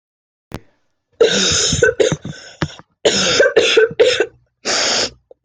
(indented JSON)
{
  "expert_labels": [
    {
      "quality": "ok",
      "cough_type": "dry",
      "dyspnea": false,
      "wheezing": false,
      "stridor": false,
      "choking": false,
      "congestion": true,
      "nothing": false,
      "diagnosis": "upper respiratory tract infection",
      "severity": "mild"
    }
  ],
  "age": 19,
  "gender": "female",
  "respiratory_condition": false,
  "fever_muscle_pain": true,
  "status": "symptomatic"
}